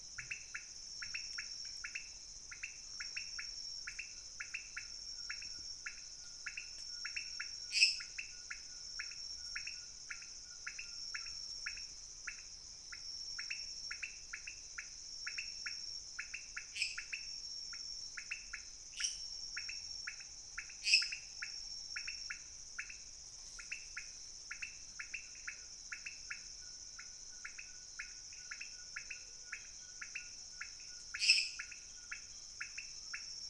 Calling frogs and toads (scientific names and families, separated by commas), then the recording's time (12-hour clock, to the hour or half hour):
Leptodactylus podicipinus (Leptodactylidae), Dendropsophus minutus (Hylidae)
1am